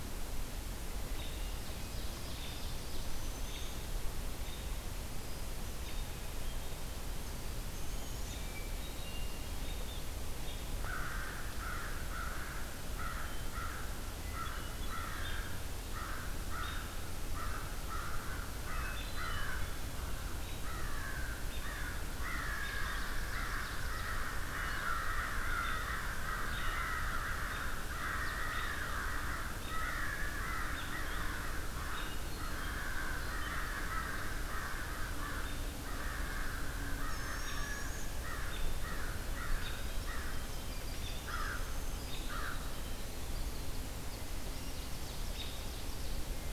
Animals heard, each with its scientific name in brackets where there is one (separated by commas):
American Robin (Turdus migratorius), Black-throated Green Warbler (Setophaga virens), unidentified call, Ovenbird (Seiurus aurocapilla), American Crow (Corvus brachyrhynchos), Hermit Thrush (Catharus guttatus), Winter Wren (Troglodytes hiemalis)